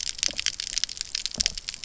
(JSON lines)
{"label": "biophony", "recorder": "SoundTrap 300"}